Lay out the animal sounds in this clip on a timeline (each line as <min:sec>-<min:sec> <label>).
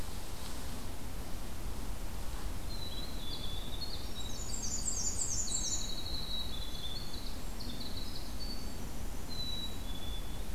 0:02.4-0:03.6 Black-capped Chickadee (Poecile atricapillus)
0:02.6-0:10.0 Winter Wren (Troglodytes hiemalis)
0:04.0-0:06.0 Black-and-white Warbler (Mniotilta varia)
0:06.5-0:07.4 Black-capped Chickadee (Poecile atricapillus)
0:09.2-0:10.5 Black-capped Chickadee (Poecile atricapillus)